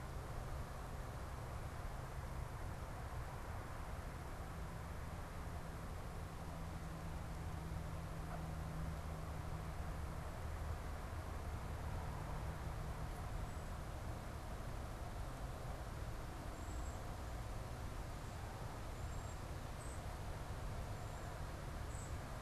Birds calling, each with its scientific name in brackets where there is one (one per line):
Cedar Waxwing (Bombycilla cedrorum)